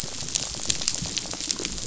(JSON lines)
{"label": "biophony, rattle", "recorder": "SoundTrap 500"}